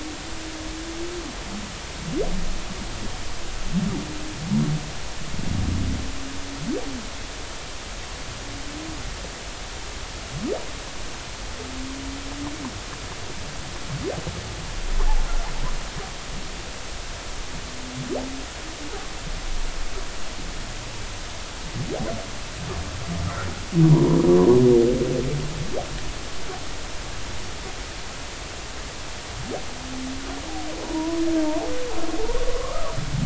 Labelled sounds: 23.9	24.2	humpback whale, 0.90 to 1.1 kHz
30.8	31.2	humpback whale, 0.90 to 1.1 kHz
32.5	33.0	humpback whale, 0.93 to 1.4 kHz

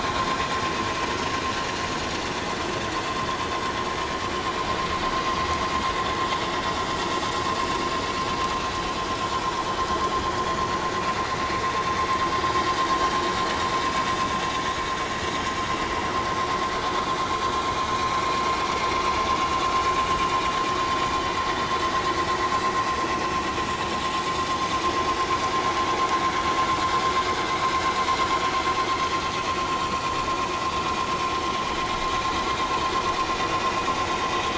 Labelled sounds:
12.4	12.7	vessel noise, 3.7 to 3.8 kHz
21.5	21.8	vessel noise, 1.8 to 2.0 kHz

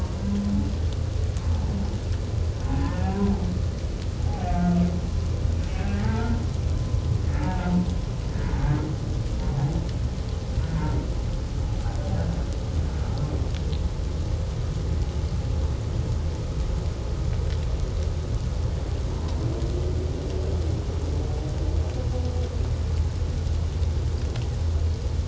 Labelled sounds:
2.7	3.0	humpback whale, 0.78 to 0.94 kHz
5.7	6.4	humpback whale, 0.78 to 1.7 kHz
6.7	7.6	humpback whale, 0.97 to 1.9 kHz
10.8	11.0	humpback whale, 0.88 to 0.97 kHz

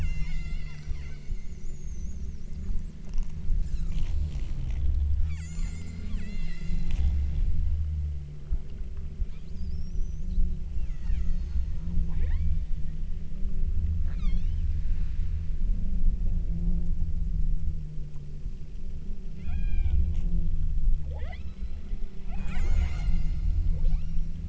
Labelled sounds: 0.0	1.3	killer whale, southern Alaska resident, 1.0 to 8.0 kHz
5.3	7.3	killer whale, southern Alaska resident, 0.96 to 8.0 kHz
10.9	12.9	killer whale, southern Alaska resident, 0.48 to 7.6 kHz
14.1	14.7	killer whale, southern Alaska resident, 0.59 to 8.0 kHz
19.5	20.1	killer whale, southern Alaska resident, 0.57 to 6.7 kHz
21.1	22.0	killer whale, southern Alaska resident, 0.34 to 5.4 kHz
22.3	24.4	killer whale, southern Alaska resident, 0.37 to 8.0 kHz

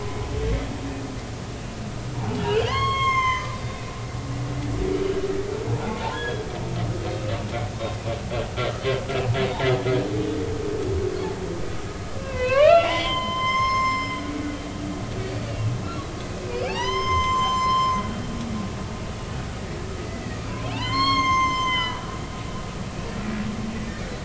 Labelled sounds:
2.3	3.9	humpback whale, 0.93 to 7.7 kHz
6.1	6.5	humpback whale, 1.5 to 3.4 kHz
12.2	14.1	humpback whale, 0.90 to 7.4 kHz
15.2	15.8	humpback whale, 2.5 to 4.6 kHz
16.5	18.0	humpback whale, 0.80 to 7.4 kHz
20.7	22.0	humpback whale, 0.83 to 7.4 kHz

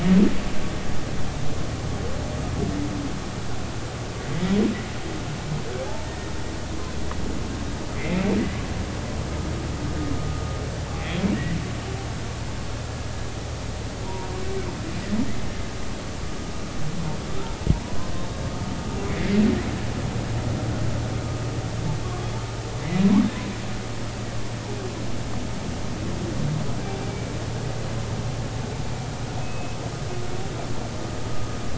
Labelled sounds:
8.0	8.3	humpback whale, 2.0 to 2.5 kHz
14.0	14.3	humpback whale, 0.90 to 0.99 kHz
17.8	18.1	humpback whale, 0.93 to 1.1 kHz
19.1	19.4	humpback whale, 2.0 to 2.3 kHz
22.0	22.3	humpback whale, 1.0 to 1.2 kHz
22.8	23.1	humpback whale, 1.9 to 2.2 kHz
29.4	29.8	humpback whale, 2.5 to 2.7 kHz

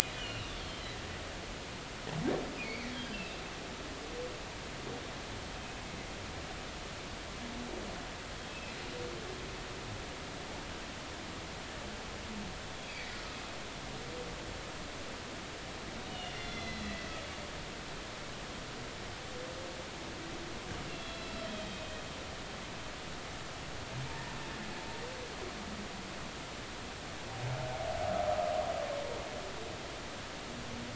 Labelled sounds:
0.2	0.5	humpback whale, 2.4 to 3.2 kHz
2.5	3.4	humpback whale, 1.9 to 2.8 kHz
8.5	8.8	humpback whale, 2.4 to 2.7 kHz
12.8	13.1	humpback whale, 2.2 to 2.6 kHz
16.1	17.1	humpback whale, 1.8 to 4.3 kHz
21.0	21.8	humpback whale, 2.6 to 4.1 kHz

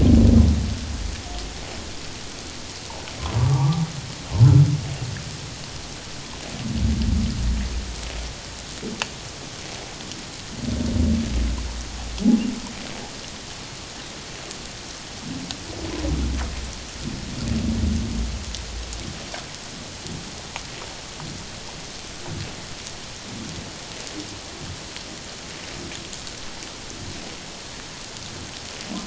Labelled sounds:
3.4	3.8	humpback whale, 0.78 to 1.2 kHz

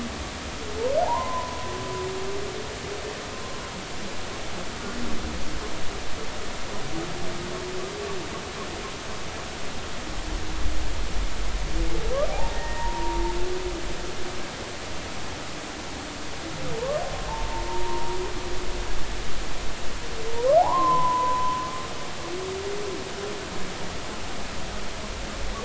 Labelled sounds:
1.0	1.6	humpback whale, 0.80 to 1.1 kHz
12.3	13.3	humpback whale, 0.80 to 1.9 kHz
17.3	18.2	humpback whale, 0.83 to 1.1 kHz
20.6	21.6	humpback whale, 0.80 to 1.1 kHz

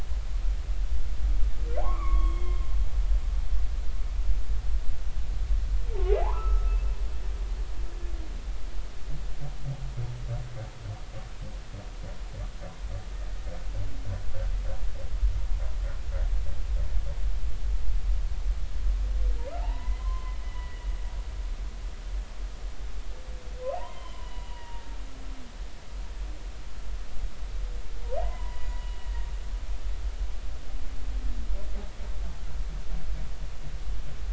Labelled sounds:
1.8	2.6	humpback whale, 0.80 to 3.4 kHz
6.2	6.8	humpback whale, 0.80 to 1.4 kHz
19.6	20.9	humpback whale, 0.80 to 3.0 kHz
23.7	24.8	humpback whale, 0.80 to 3.2 kHz
28.2	29.1	humpback whale, 0.80 to 3.0 kHz

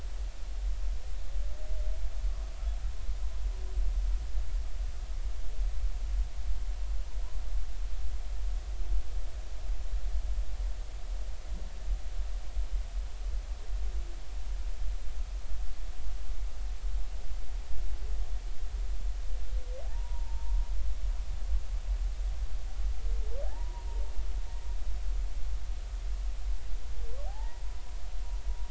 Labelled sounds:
19.8	20.6	humpback whale, 0.80 to 1.0 kHz
23.5	23.9	humpback whale, 0.80 to 1.0 kHz
27.3	27.6	humpback whale, 0.80 to 2.0 kHz

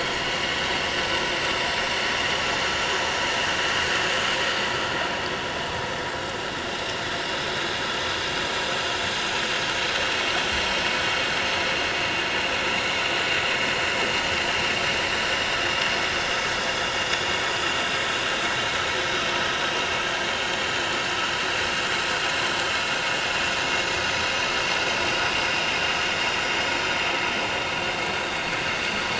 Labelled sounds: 17.1	17.4	vessel noise, 6.9 to 7.0 kHz

